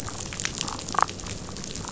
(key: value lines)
label: biophony, damselfish
recorder: SoundTrap 500